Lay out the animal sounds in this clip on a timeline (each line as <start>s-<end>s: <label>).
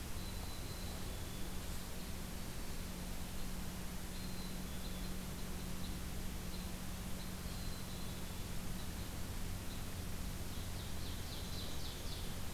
0.0s-1.8s: Black-capped Chickadee (Poecile atricapillus)
1.5s-9.8s: Red Crossbill (Loxia curvirostra)
4.0s-5.1s: Black-capped Chickadee (Poecile atricapillus)
7.3s-8.6s: Black-capped Chickadee (Poecile atricapillus)
10.2s-12.5s: Ovenbird (Seiurus aurocapilla)
11.2s-12.3s: Black-capped Chickadee (Poecile atricapillus)